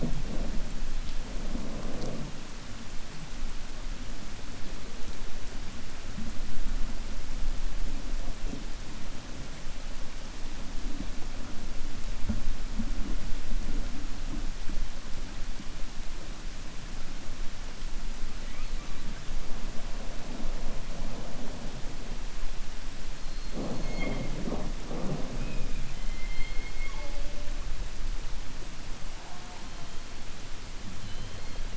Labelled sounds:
25.3	27.1	killer whale, 0.59 to 4.2 kHz

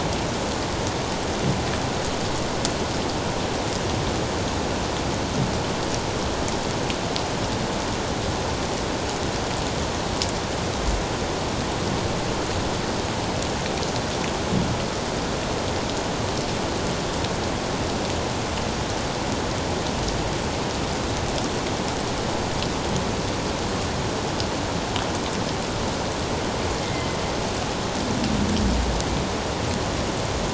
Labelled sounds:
26.8	27.2	killer whale, 2.0 to 2.2 kHz

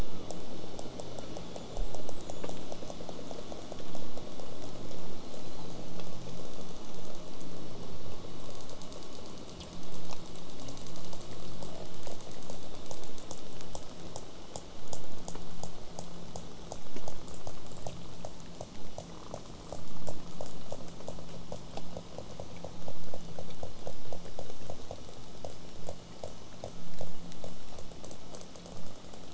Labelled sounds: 1.4	2.7	killer whale, southern resident, J pod, whistle, 6.6 to 8.0 kHz

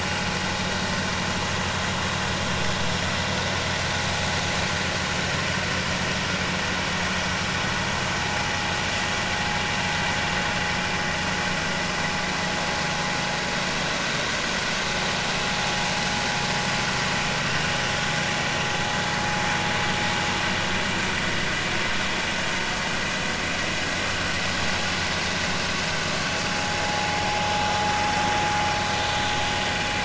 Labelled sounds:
26.9	27.1	vessel noise, 0.80 to 0.99 kHz

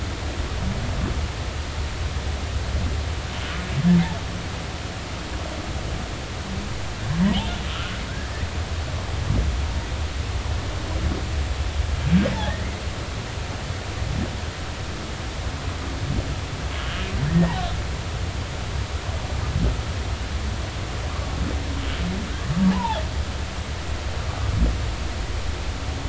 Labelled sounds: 7.2	7.5	humpback whale, 2.8 to 3.4 kHz
12.3	12.8	humpback whale, 1.6 to 2.2 kHz
16.8	17.6	humpback whale, 1.6 to 3.3 kHz
22.7	23.0	humpback whale, 0.80 to 1.1 kHz

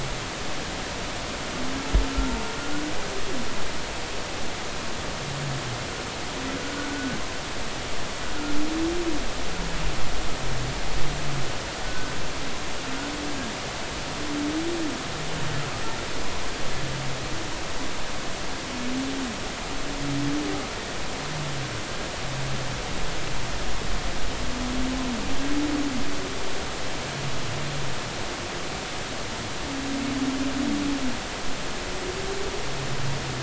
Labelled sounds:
6.6	7.2	humpback whale, 1.4 to 1.6 kHz
11.8	12.1	humpback whale, 1.5 to 1.6 kHz

